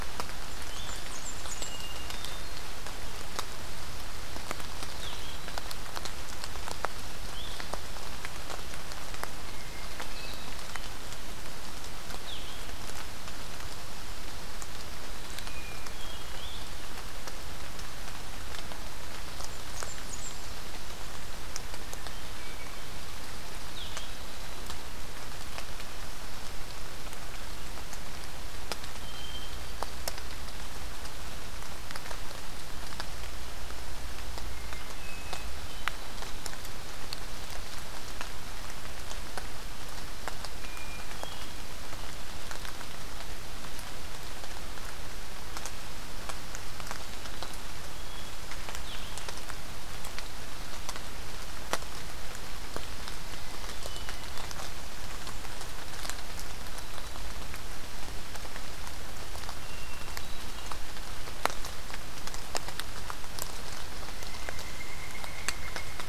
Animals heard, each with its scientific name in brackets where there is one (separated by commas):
Hermit Thrush (Catharus guttatus), Blue-headed Vireo (Vireo solitarius), Pileated Woodpecker (Dryocopus pileatus), Blackburnian Warbler (Setophaga fusca)